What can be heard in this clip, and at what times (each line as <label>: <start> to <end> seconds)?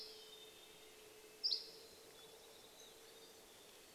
Dusky Flycatcher song: 0 to 2 seconds
Mountain Chickadee song: 0 to 4 seconds
Red-breasted Nuthatch song: 0 to 4 seconds
unidentified sound: 2 to 4 seconds